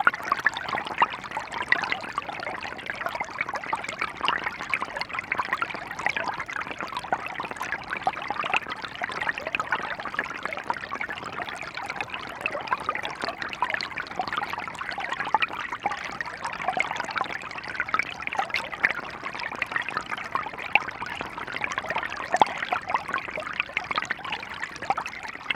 Is the noise continuous?
yes